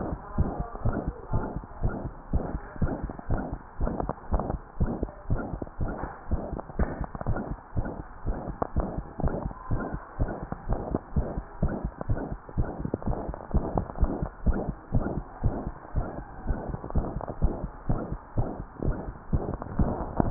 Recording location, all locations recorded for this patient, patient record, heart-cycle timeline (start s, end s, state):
mitral valve (MV)
aortic valve (AV)+pulmonary valve (PV)+tricuspid valve (TV)+mitral valve (MV)
#Age: Adolescent
#Sex: Female
#Height: 141.0 cm
#Weight: 34.4 kg
#Pregnancy status: False
#Murmur: Present
#Murmur locations: mitral valve (MV)+tricuspid valve (TV)
#Most audible location: mitral valve (MV)
#Systolic murmur timing: Holosystolic
#Systolic murmur shape: Decrescendo
#Systolic murmur grading: I/VI
#Systolic murmur pitch: Medium
#Systolic murmur quality: Blowing
#Diastolic murmur timing: nan
#Diastolic murmur shape: nan
#Diastolic murmur grading: nan
#Diastolic murmur pitch: nan
#Diastolic murmur quality: nan
#Outcome: Abnormal
#Campaign: 2015 screening campaign
0.00	0.16	unannotated
0.16	0.34	diastole
0.34	0.47	S1
0.47	0.56	systole
0.56	0.66	S2
0.66	0.84	diastole
0.84	0.96	S1
0.96	1.06	systole
1.06	1.14	S2
1.14	1.30	diastole
1.30	1.44	S1
1.44	1.54	systole
1.54	1.64	S2
1.64	1.82	diastole
1.82	1.94	S1
1.94	2.02	systole
2.02	2.12	S2
2.12	2.30	diastole
2.30	2.46	S1
2.46	2.54	systole
2.54	2.62	S2
2.62	2.80	diastole
2.80	2.92	S1
2.92	3.02	systole
3.02	3.10	S2
3.10	3.28	diastole
3.28	3.40	S1
3.40	3.50	systole
3.50	3.60	S2
3.60	3.78	diastole
3.78	3.89	S1
3.89	4.01	systole
4.01	4.08	S2
4.08	4.29	diastole
4.29	4.41	S1
4.41	4.50	systole
4.50	4.62	S2
4.62	4.78	diastole
4.78	4.90	S1
4.90	5.00	systole
5.00	5.10	S2
5.10	5.28	diastole
5.28	5.42	S1
5.42	5.50	systole
5.50	5.60	S2
5.60	5.80	diastole
5.80	5.92	S1
5.92	6.02	systole
6.02	6.10	S2
6.10	6.28	diastole
6.28	6.40	S1
6.40	6.50	systole
6.50	6.58	S2
6.58	6.76	diastole
6.76	6.88	S1
6.88	6.98	systole
6.98	7.08	S2
7.08	7.28	diastole
7.28	7.38	S1
7.38	7.48	systole
7.48	7.56	S2
7.56	7.74	diastole
7.74	7.86	S1
7.86	7.98	systole
7.98	8.04	S2
8.04	8.26	diastole
8.26	8.36	S1
8.36	8.46	systole
8.46	8.56	S2
8.56	8.74	diastole
8.74	8.85	S1
8.85	8.95	systole
8.95	9.06	S2
9.06	9.22	diastole
9.22	9.32	S1
9.32	9.44	systole
9.44	9.52	S2
9.52	9.70	diastole
9.70	9.82	S1
9.82	9.92	systole
9.92	10.02	S2
10.02	10.20	diastole
10.20	10.32	S1
10.32	10.42	systole
10.42	10.50	S2
10.50	10.68	diastole
10.68	10.84	S1
10.84	10.92	systole
10.92	11.00	S2
11.00	11.14	diastole
11.14	11.28	S1
11.28	11.36	systole
11.36	11.44	S2
11.44	11.61	diastole
11.61	11.71	S1
11.71	11.83	systole
11.83	11.92	S2
11.92	12.08	diastole
12.08	12.20	S1
12.20	12.30	systole
12.30	12.38	S2
12.38	12.56	diastole
12.56	12.68	S1
12.68	12.78	systole
12.78	12.90	S2
12.90	13.06	diastole
13.06	13.18	S1
13.18	13.26	systole
13.26	13.36	S2
13.36	13.52	diastole
13.52	13.64	S1
13.64	13.74	systole
13.74	13.86	S2
13.86	14.00	diastole
14.00	14.11	S1
14.11	14.20	systole
14.20	14.30	S2
14.30	14.46	diastole
14.46	14.55	S1
14.55	14.66	systole
14.66	14.76	S2
14.76	14.92	diastole
14.92	15.06	S1
15.06	15.12	systole
15.12	15.24	S2
15.24	15.42	diastole
15.42	15.54	S1
15.54	15.62	systole
15.62	15.74	S2
15.74	15.94	diastole
15.94	16.06	S1
16.06	16.18	systole
16.18	16.26	S2
16.26	16.46	diastole
16.46	16.59	S1
16.59	16.68	systole
16.68	16.78	S2
16.78	16.94	diastole
16.94	17.06	S1
17.06	17.14	systole
17.14	17.24	S2
17.24	17.42	diastole
17.42	17.54	S1
17.54	17.62	systole
17.62	17.72	S2
17.72	17.88	diastole
17.88	18.00	S1
18.00	18.10	systole
18.10	18.20	S2
18.20	18.38	diastole
18.38	18.48	S1
18.48	18.58	systole
18.58	18.64	S2
18.64	18.84	diastole
18.84	18.98	S1
18.98	19.06	systole
19.06	19.16	S2
19.16	19.32	diastole
19.32	19.42	S1
19.42	19.50	systole
19.50	19.62	S2
19.62	19.78	diastole
19.78	20.30	unannotated